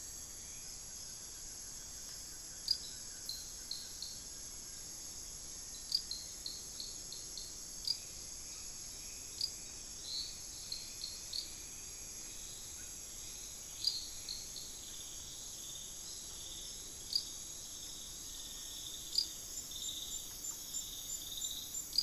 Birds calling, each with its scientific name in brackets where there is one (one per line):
Hauxwell's Thrush (Turdus hauxwelli)
Blue-crowned Trogon (Trogon curucui)
Cinereous Tinamou (Crypturellus cinereus)